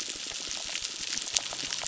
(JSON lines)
{"label": "biophony, crackle", "recorder": "SoundTrap 600"}